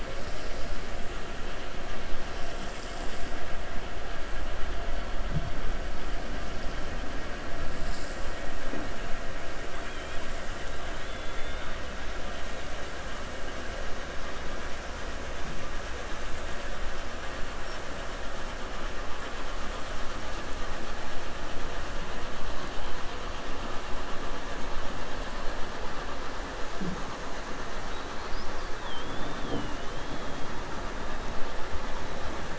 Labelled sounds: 10.9	11.7	killer whale, 1.4 to 4.2 kHz

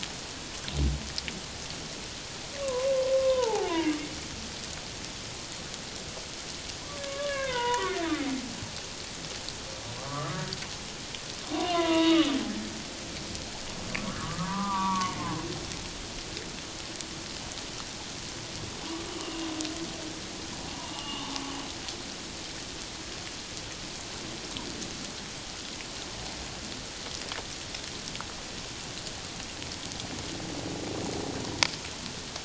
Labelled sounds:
2.6	4.0	humpback whale, 0.78 to 1.7 kHz
7.0	8.1	humpback whale, 0.91 to 3.2 kHz
10.0	10.4	humpback whale, 0.94 to 1.3 kHz
11.7	12.7	humpback whale, 0.91 to 3.8 kHz
14.0	15.2	humpback whale, 0.88 to 1.5 kHz
19.1	19.5	humpback whale, 2.7 to 3.1 kHz
20.6	21.4	humpback whale, 0.78 to 3.1 kHz

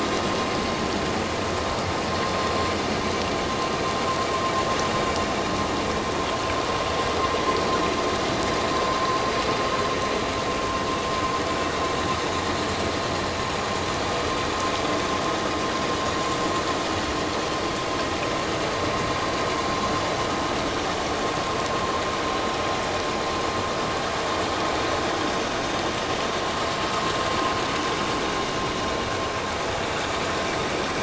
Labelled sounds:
0.3	0.5	vessel noise, 7.6 to 7.8 kHz

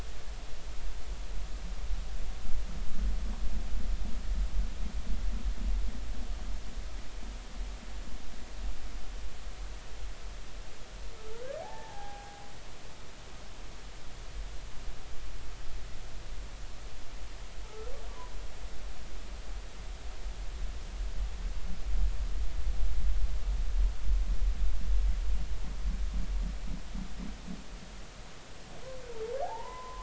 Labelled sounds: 11.6	12.5	humpback whale, 0.80 to 1.8 kHz
17.6	17.9	humpback whale, 1.2 to 1.4 kHz
29.4	30.0	humpback whale, 0.80 to 1.1 kHz

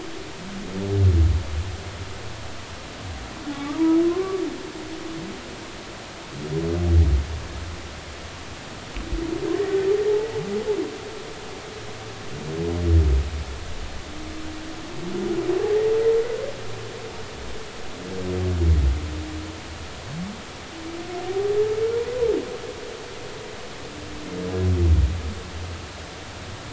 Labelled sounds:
3.5	4.4	humpback whale, 0.80 to 1.3 kHz

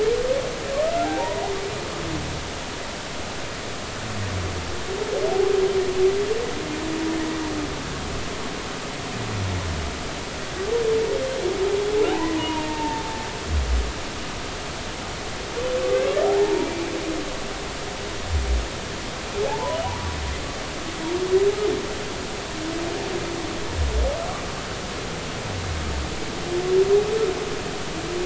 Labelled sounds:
1.0	1.5	humpback whale, 0.80 to 1.0 kHz
12.1	13.1	humpback whale, 0.80 to 1.1 kHz
16.2	16.9	humpback whale, 0.80 to 2.5 kHz
19.4	19.8	humpback whale, 0.80 to 1.1 kHz

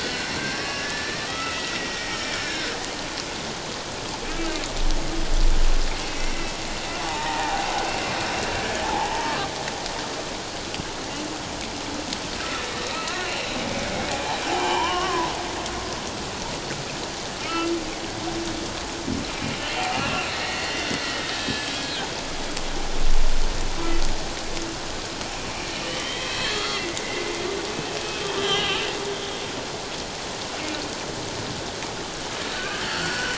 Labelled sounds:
0.0	2.7	humpback whale, 1.1 to 5.5 kHz
7.1	7.7	humpback whale, 0.78 to 1.9 kHz
8.8	9.5	humpback whale, 0.78 to 1.2 kHz
12.9	13.3	humpback whale, 1.2 to 1.5 kHz
14.5	15.3	humpback whale, 0.78 to 3.2 kHz
17.4	17.7	humpback whale, 2.1 to 2.8 kHz
19.6	22.1	humpback whale, 1.5 to 4.4 kHz
25.9	26.9	humpback whale, 1.2 to 3.4 kHz
28.4	28.9	humpback whale, 1.5 to 3.3 kHz
32.5	33.3	humpback whale, 1.3 to 4.6 kHz

